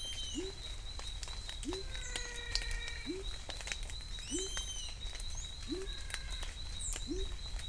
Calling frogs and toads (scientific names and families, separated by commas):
Adenomera diptyx (Leptodactylidae), Leptodactylus labyrinthicus (Leptodactylidae), Physalaemus albonotatus (Leptodactylidae)